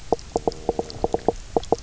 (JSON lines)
{"label": "biophony, knock croak", "recorder": "SoundTrap 300"}